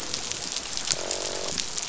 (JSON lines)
{"label": "biophony, croak", "recorder": "SoundTrap 500"}